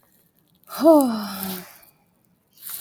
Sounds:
Sigh